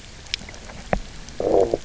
{"label": "biophony, low growl", "recorder": "SoundTrap 300"}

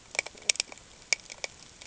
{"label": "ambient", "recorder": "HydroMoth"}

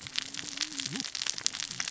{"label": "biophony, cascading saw", "recorder": "SoundTrap 600 or HydroMoth"}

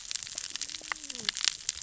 {"label": "biophony, cascading saw", "recorder": "SoundTrap 600 or HydroMoth"}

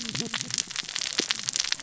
{"label": "biophony, cascading saw", "recorder": "SoundTrap 600 or HydroMoth"}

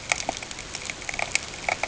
{"label": "ambient", "recorder": "HydroMoth"}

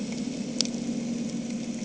{"label": "anthrophony, boat engine", "recorder": "HydroMoth"}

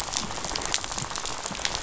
{"label": "biophony, rattle", "recorder": "SoundTrap 500"}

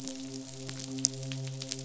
{"label": "biophony, midshipman", "recorder": "SoundTrap 500"}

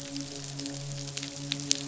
{"label": "biophony, midshipman", "recorder": "SoundTrap 500"}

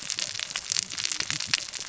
{"label": "biophony, cascading saw", "recorder": "SoundTrap 600 or HydroMoth"}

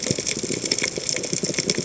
{"label": "biophony, chatter", "recorder": "HydroMoth"}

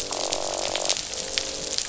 {"label": "biophony, croak", "recorder": "SoundTrap 500"}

